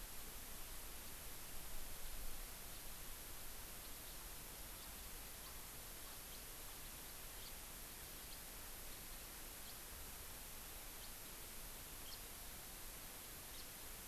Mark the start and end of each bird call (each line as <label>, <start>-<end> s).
House Finch (Haemorhous mexicanus), 4.7-4.8 s
House Finch (Haemorhous mexicanus), 5.4-5.5 s
House Finch (Haemorhous mexicanus), 7.4-7.5 s
House Finch (Haemorhous mexicanus), 9.6-9.7 s
House Finch (Haemorhous mexicanus), 12.0-12.1 s
House Finch (Haemorhous mexicanus), 13.5-13.6 s